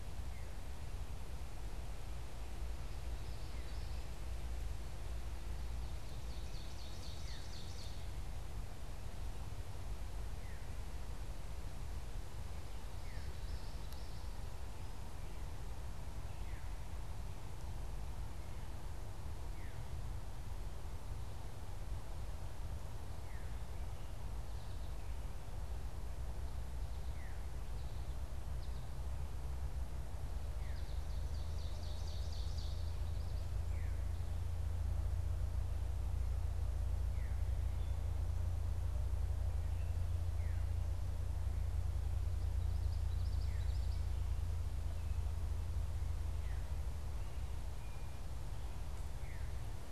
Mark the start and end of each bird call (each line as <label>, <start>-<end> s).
Veery (Catharus fuscescens), 0.0-4.0 s
Ovenbird (Seiurus aurocapilla), 5.5-8.4 s
Veery (Catharus fuscescens), 7.1-19.9 s
Veery (Catharus fuscescens), 23.0-49.9 s
Ovenbird (Seiurus aurocapilla), 30.6-33.2 s
Common Yellowthroat (Geothlypis trichas), 42.3-44.1 s